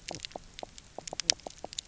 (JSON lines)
{"label": "biophony, knock croak", "recorder": "SoundTrap 300"}